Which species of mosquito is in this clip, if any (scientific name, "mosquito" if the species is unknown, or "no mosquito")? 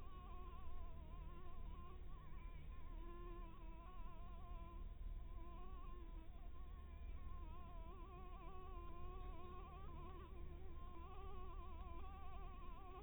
Anopheles dirus